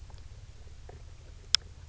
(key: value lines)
label: anthrophony, boat engine
recorder: SoundTrap 300